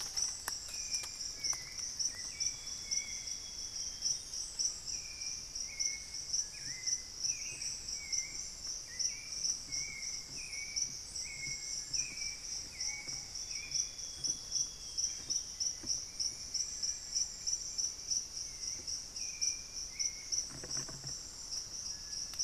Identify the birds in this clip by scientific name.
Patagioenas subvinacea, Turdus hauxwelli, Crypturellus soui, Cyanoloxia rothschildii, unidentified bird